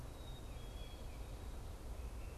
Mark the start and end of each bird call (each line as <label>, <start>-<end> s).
Black-capped Chickadee (Poecile atricapillus), 0.0-2.4 s